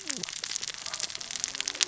{"label": "biophony, cascading saw", "recorder": "SoundTrap 600 or HydroMoth"}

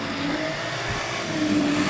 {"label": "anthrophony, boat engine", "recorder": "SoundTrap 500"}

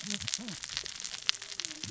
{"label": "biophony, cascading saw", "recorder": "SoundTrap 600 or HydroMoth"}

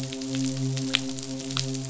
{"label": "biophony, midshipman", "recorder": "SoundTrap 500"}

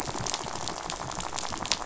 {"label": "biophony, rattle", "recorder": "SoundTrap 500"}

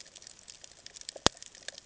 {"label": "ambient", "recorder": "HydroMoth"}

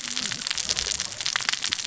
{"label": "biophony, cascading saw", "recorder": "SoundTrap 600 or HydroMoth"}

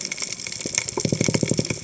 {"label": "biophony", "recorder": "HydroMoth"}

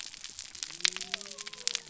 {"label": "biophony", "recorder": "SoundTrap 300"}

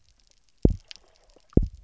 {"label": "biophony, double pulse", "recorder": "SoundTrap 300"}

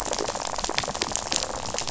{"label": "biophony, rattle", "recorder": "SoundTrap 500"}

